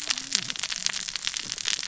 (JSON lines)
{"label": "biophony, cascading saw", "recorder": "SoundTrap 600 or HydroMoth"}